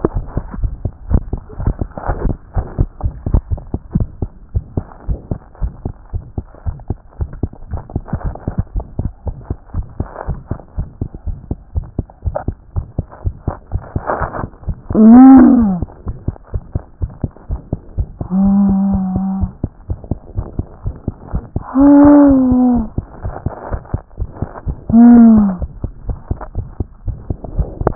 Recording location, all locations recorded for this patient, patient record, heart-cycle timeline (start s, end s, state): pulmonary valve (PV)
aortic valve (AV)+pulmonary valve (PV)+tricuspid valve (TV)
#Age: Child
#Sex: Male
#Height: nan
#Weight: 28.2 kg
#Pregnancy status: False
#Murmur: Present
#Murmur locations: aortic valve (AV)+pulmonary valve (PV)+tricuspid valve (TV)
#Most audible location: pulmonary valve (PV)
#Systolic murmur timing: Early-systolic
#Systolic murmur shape: Decrescendo
#Systolic murmur grading: I/VI
#Systolic murmur pitch: Low
#Systolic murmur quality: Blowing
#Diastolic murmur timing: nan
#Diastolic murmur shape: nan
#Diastolic murmur grading: nan
#Diastolic murmur pitch: nan
#Diastolic murmur quality: nan
#Outcome: Abnormal
#Campaign: 2014 screening campaign
0.00	3.83	unannotated
3.83	3.94	diastole
3.94	4.08	S1
4.08	4.22	systole
4.22	4.32	S2
4.32	4.51	diastole
4.51	4.64	S1
4.64	4.76	systole
4.76	4.86	S2
4.86	5.06	diastole
5.06	5.18	S1
5.18	5.30	systole
5.30	5.40	S2
5.40	5.60	diastole
5.60	5.72	S1
5.72	5.84	systole
5.84	5.94	S2
5.94	6.14	diastole
6.14	6.22	S1
6.22	6.36	systole
6.36	6.46	S2
6.46	6.66	diastole
6.66	6.76	S1
6.76	6.90	systole
6.90	6.98	S2
6.98	7.18	diastole
7.18	7.28	S1
7.28	7.42	systole
7.42	7.52	S2
7.52	7.72	diastole
7.72	27.95	unannotated